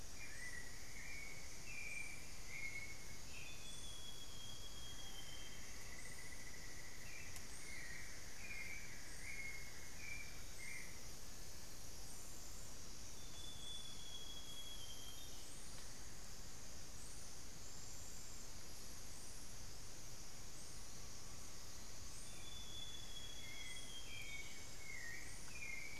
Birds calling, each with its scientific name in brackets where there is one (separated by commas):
Amazonian Pygmy-Owl (Glaucidium hardyi), Cinnamon-throated Woodcreeper (Dendrexetastes rufigula), Screaming Piha (Lipaugus vociferans), Hauxwell's Thrush (Turdus hauxwelli), Amazonian Grosbeak (Cyanoloxia rothschildii)